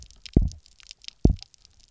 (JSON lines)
{"label": "biophony, double pulse", "recorder": "SoundTrap 300"}